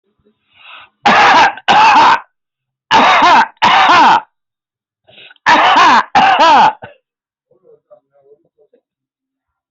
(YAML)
expert_labels:
- quality: good
  cough_type: wet
  dyspnea: false
  wheezing: false
  stridor: false
  choking: false
  congestion: false
  nothing: true
  diagnosis: upper respiratory tract infection
  severity: severe
age: 55
gender: male
respiratory_condition: true
fever_muscle_pain: false
status: symptomatic